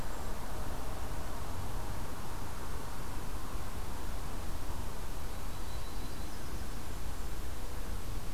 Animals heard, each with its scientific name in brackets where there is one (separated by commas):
Golden-crowned Kinglet (Regulus satrapa), Yellow-rumped Warbler (Setophaga coronata)